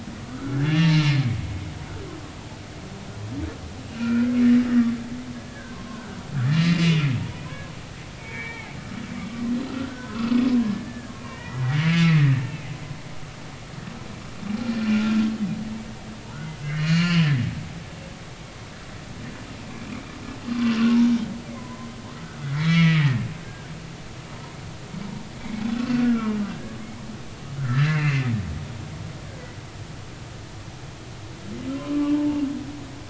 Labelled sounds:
0.3	1.0	humpback whale, 1.1 to 4.7 kHz
4.0	4.3	humpback whale, 1.3 to 2.6 kHz
4.7	7.7	humpback whale, 0.90 to 4.2 kHz
8.2	8.8	humpback whale, 0.80 to 2.4 kHz
9.9	12.7	humpback whale, 0.96 to 3.0 kHz
14.9	15.2	humpback whale, 1.3 to 1.5 kHz
16.8	17.3	humpback whale, 0.96 to 4.6 kHz
19.9	20.1	humpback whale, 2.1 to 2.6 kHz
21.6	23.7	humpback whale, 0.96 to 5.5 kHz
25.4	26.8	humpback whale, 1.2 to 2.8 kHz
27.6	28.3	humpback whale, 1.3 to 2.8 kHz
31.7	32.4	humpback whale, 0.83 to 1.2 kHz

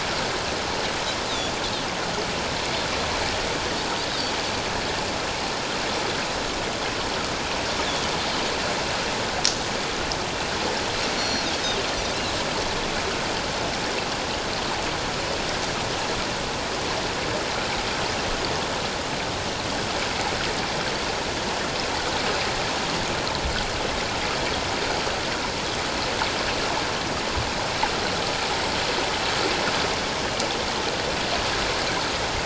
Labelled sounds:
11.2	11.5	Pacific white-sided dolphin, 4.2 to 5.8 kHz

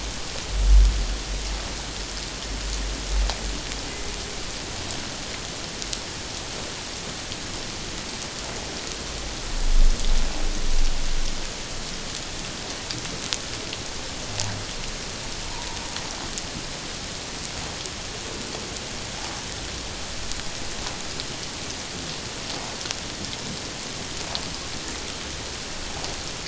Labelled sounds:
15.5	15.8	humpback whale, 0.88 to 1.0 kHz

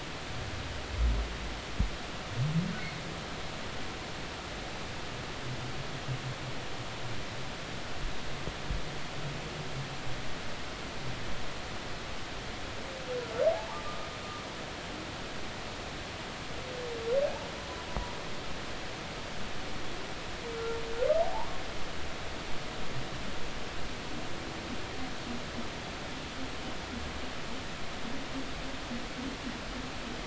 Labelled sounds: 21.2	21.6	humpback whale, 0.80 to 1.2 kHz

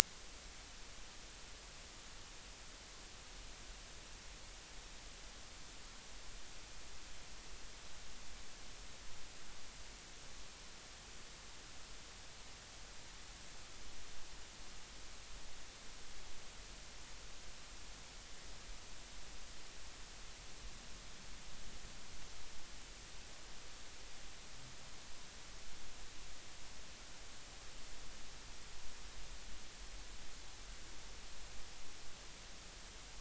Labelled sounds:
1.0	1.3	vessel noise, 3.5 to 3.7 kHz

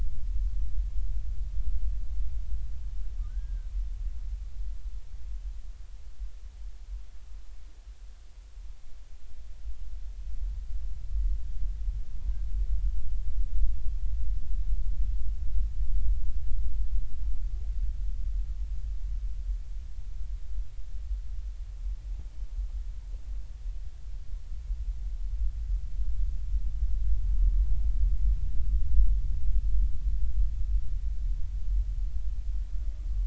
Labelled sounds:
3.3	3.7	humpback whale, 1.4 to 1.7 kHz

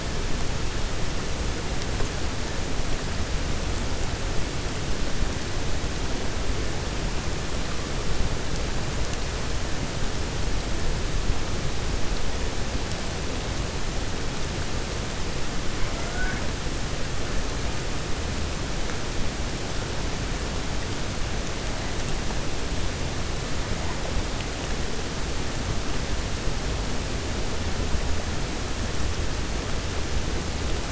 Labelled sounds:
15.7	16.4	killer whale, 0.67 to 2.3 kHz

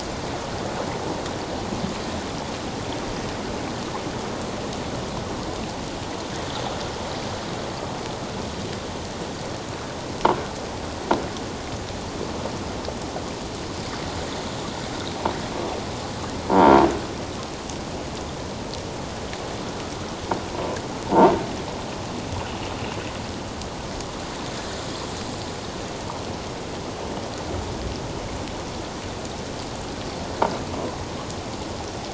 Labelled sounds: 16.5	16.8	croaking sound likely from a nearby submerged object, 0.88 to 1.4 kHz
21.1	21.3	croaking sound likely from a nearby submerged object, 0.84 to 1.0 kHz

